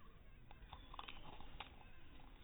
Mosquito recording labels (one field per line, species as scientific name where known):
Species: mosquito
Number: one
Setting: cup